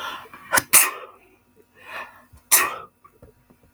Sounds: Sneeze